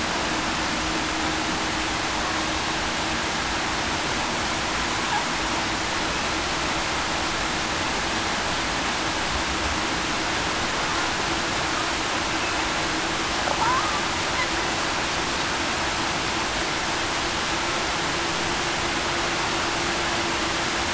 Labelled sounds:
13.6	14.0	killer whale, Bigg's (transient), 0.84 to 1.3 kHz

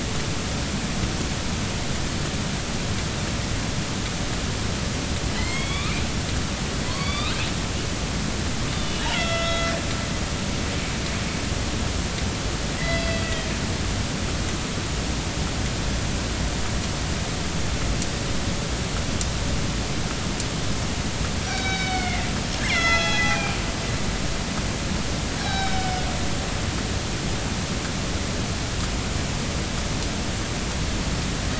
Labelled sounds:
5.4	5.9	killer whale, northern resident, A clan, AB subclan, B01 pod, call N16, 1.1 to 4.6 kHz
6.9	7.4	killer whale, northern resident, A clan, AB subclan, B01 pod, call N16, 0.96 to 4.8 kHz
8.7	9.1	killer whale, northern resident, A clan, AB subclan, call N07iii, 2.8 to 3.7 kHz
9.1	9.7	killer whale, northern resident, A clan, AB subclan, B01 pod, call N01ii, 1.3 to 5.6 kHz
12.8	13.5	killer whale, northern resident, A clan, AB subclan, B01 pod, call N18, 1.8 to 3.4 kHz
21.5	22.9	killer whale, northern resident, A clan, AB subclan, B01 pod, call N18, 1.5 to 5.4 kHz
22.6	23.6	killer whale, northern resident, A clan, AB subclan, B01 pod, call N01ii, 0.80 to 4.2 kHz
25.4	26.0	killer whale, northern resident, A clan, AB subclan, B01 pod, call N18, 0.80 to 5.7 kHz

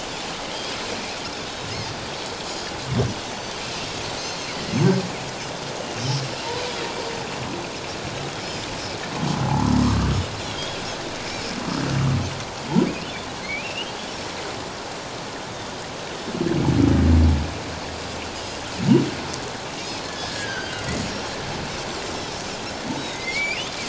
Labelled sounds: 4.2	4.8	Pacific white-sided dolphin, 1.9 to 4.4 kHz
9.5	10.1	humpback whale, 0.78 to 1.3 kHz
10.4	10.8	Pacific white-sided dolphin, 3.2 to 3.7 kHz
13.4	14.0	humpback whale, 2.0 to 3.3 kHz
17.9	18.1	Pacific white-sided dolphin, 4.8 to 5.0 kHz
20.0	20.8	humpback whale, 1.4 to 3.3 kHz
22.9	23.2	Pacific white-sided dolphin, 3.6 to 3.9 kHz
23.1	23.7	humpback whale, 2.0 to 3.1 kHz

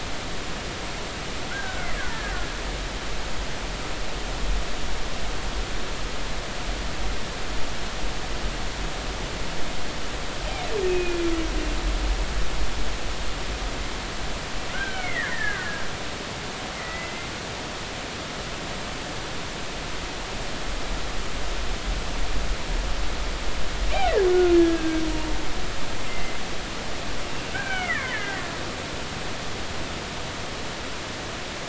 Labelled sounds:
1.5	2.3	killer whale, Bigg's (transient), 1.3 to 1.8 kHz
10.9	11.2	killer whale, Bigg's (transient), 2.4 to 2.6 kHz
14.7	15.8	killer whale, Bigg's (transient), 1.4 to 2.4 kHz
16.8	17.3	killer whale, Bigg's (transient), 1.9 to 2.1 kHz
24.3	25.0	killer whale, Bigg's (transient), 1.3 to 1.8 kHz
26.1	26.4	killer whale, Bigg's (transient), 2.0 to 2.1 kHz
27.5	28.4	killer whale, Bigg's (transient), 1.2 to 2.4 kHz

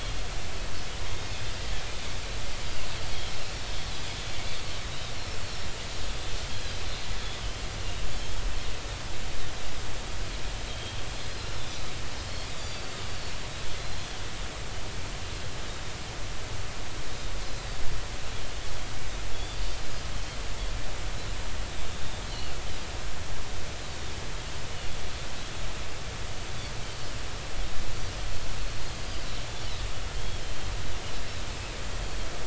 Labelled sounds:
1.3	1.6	Pacific white-sided dolphin, 3.4 to 3.6 kHz
4.4	5.4	Pacific white-sided dolphin, 3.6 to 5.7 kHz
7.1	7.4	Pacific white-sided dolphin, 3.3 to 3.6 kHz
8.2	8.4	Pacific white-sided dolphin, 3.0 to 3.4 kHz
10.7	11.0	Pacific white-sided dolphin, 3.2 to 3.3 kHz
12.6	12.9	Pacific white-sided dolphin, 4.5 to 4.8 kHz
13.8	14.1	Pacific white-sided dolphin, 4.0 to 4.2 kHz
19.3	19.6	Pacific white-sided dolphin, 3.3 to 4.7 kHz
21.9	22.5	Pacific white-sided dolphin, 2.8 to 3.7 kHz
28.9	29.2	Pacific white-sided dolphin, 4.7 to 4.9 kHz
30.1	30.4	Pacific white-sided dolphin, 3.1 to 3.4 kHz

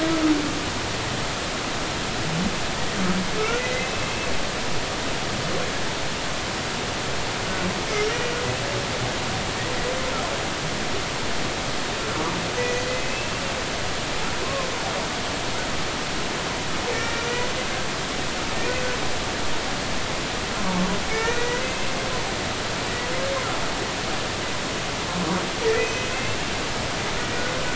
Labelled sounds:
3.6	4.1	humpback whale, 2.0 to 2.7 kHz
12.6	13.4	humpback whale, 1.9 to 2.8 kHz
14.4	14.7	humpback whale, 0.99 to 1.2 kHz
16.9	18.2	humpback whale, 1.4 to 5.6 kHz
21.1	21.9	humpback whale, 1.7 to 2.7 kHz
25.8	26.4	humpback whale, 2.4 to 2.7 kHz

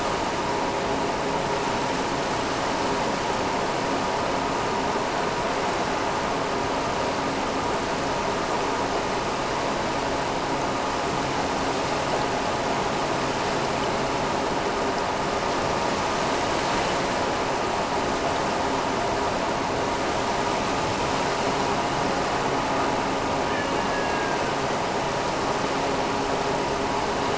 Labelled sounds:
23.5	24.6	killer whale, Bigg's (transient), AT1 transient, 1.4 to 3.0 kHz

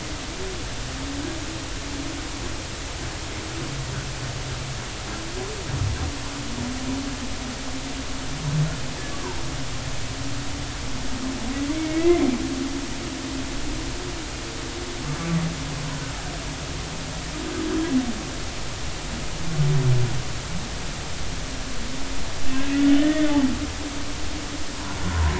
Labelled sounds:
11.8	12.2	humpback whale, 1.9 to 2.3 kHz
23.0	23.3	humpback whale, 1.7 to 1.9 kHz
25.0	25.3	humpback whale, 0.90 to 1.1 kHz

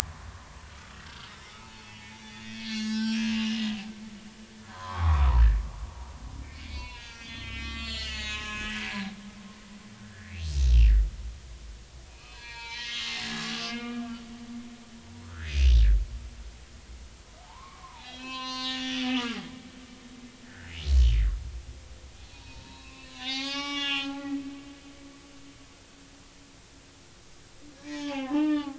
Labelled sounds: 0.4	0.7	humpback whale, 0.86 to 1.1 kHz
1.3	3.6	humpback whale, 0.83 to 5.6 kHz
4.6	5.4	humpback whale, 0.80 to 3.7 kHz
6.4	9.1	humpback whale, 0.80 to 7.6 kHz
10.0	10.3	humpback whale, 1.4 to 2.0 kHz
12.1	14.0	humpback whale, 0.86 to 5.1 kHz
15.3	15.6	humpback whale, 1.2 to 2.1 kHz
17.4	19.4	humpback whale, 0.80 to 6.5 kHz
20.4	20.7	humpback whale, 1.4 to 1.9 kHz
22.3	24.2	humpback whale, 0.80 to 6.4 kHz
27.8	28.7	humpback whale, 0.80 to 3.6 kHz

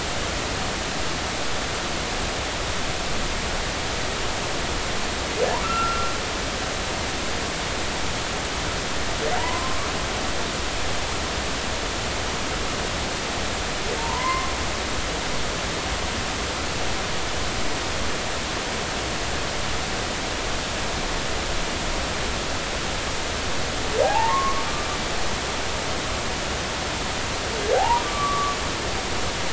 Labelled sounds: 5.6	6.1	humpback whale, 1.2 to 1.4 kHz
9.4	9.9	humpback whale, 0.90 to 1.2 kHz
14.0	14.5	humpback whale, 0.86 to 2.2 kHz
24.0	24.6	humpback whale, 0.80 to 1.2 kHz
27.7	28.6	humpback whale, 0.80 to 1.2 kHz

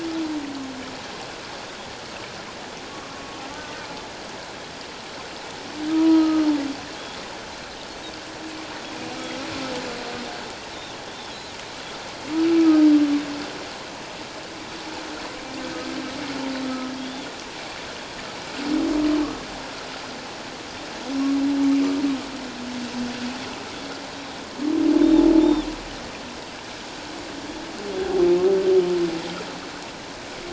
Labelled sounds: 3.5	3.8	humpback whale, 1.1 to 1.3 kHz
5.9	6.5	humpback whale, 0.91 to 1.3 kHz
11.1	11.4	Pacific white-sided dolphin, 3.2 to 3.6 kHz
12.6	12.9	humpback whale, 1.2 to 1.3 kHz
16.6	16.9	humpback whale, 1.2 to 1.3 kHz
17.0	17.3	Pacific white-sided dolphin, 3.2 to 3.6 kHz
25.4	25.7	Pacific white-sided dolphin, 3.3 to 3.7 kHz

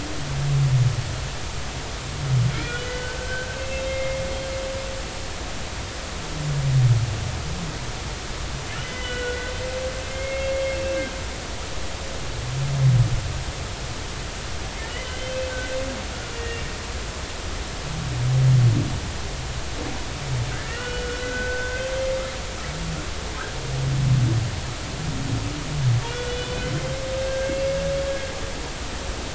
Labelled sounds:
2.5	4.2	humpback whale, 1.3 to 3.1 kHz
8.8	9.5	humpback whale, 1.4 to 3.1 kHz
10.0	10.6	humpback whale, 2.1 to 2.8 kHz
14.8	15.4	humpback whale, 1.7 to 3.2 kHz
16.3	16.6	humpback whale, 1.8 to 2.8 kHz
20.5	21.9	humpback whale, 1.3 to 3.0 kHz
26.3	27.6	humpback whale, 1.5 to 3.6 kHz

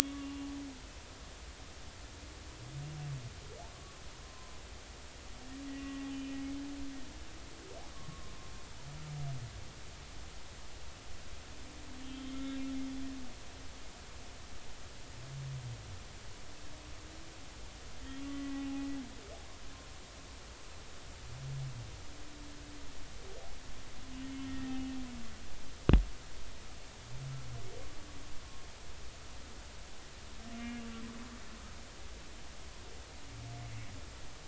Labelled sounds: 0.0	0.5	humpback whale, 1.1 to 2.9 kHz
4.2	4.5	humpback whale, 0.96 to 1.1 kHz
5.7	6.0	humpback whale, 1.9 to 2.0 kHz
7.9	8.3	humpback whale, 0.99 to 1.2 kHz
12.0	12.6	humpback whale, 2.1 to 3.6 kHz
18.2	18.9	humpback whale, 0.80 to 2.0 kHz
24.3	25.0	humpback whale, 1.8 to 3.0 kHz
30.5	30.8	humpback whale, 2.1 to 2.2 kHz

